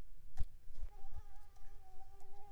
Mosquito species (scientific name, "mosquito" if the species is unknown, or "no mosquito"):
Anopheles coustani